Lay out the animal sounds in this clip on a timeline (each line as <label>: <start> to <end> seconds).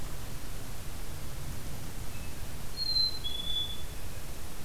Black-capped Chickadee (Poecile atricapillus): 2.6 to 3.9 seconds